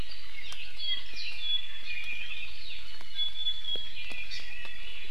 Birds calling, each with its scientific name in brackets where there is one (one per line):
Apapane (Himatione sanguinea)
Iiwi (Drepanis coccinea)